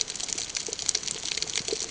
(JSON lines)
{"label": "ambient", "recorder": "HydroMoth"}